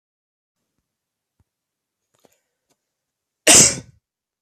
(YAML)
expert_labels:
- quality: good
  cough_type: dry
  dyspnea: false
  wheezing: false
  stridor: false
  choking: false
  congestion: false
  nothing: true
  diagnosis: healthy cough
  severity: pseudocough/healthy cough
age: 22
gender: male
respiratory_condition: false
fever_muscle_pain: false
status: COVID-19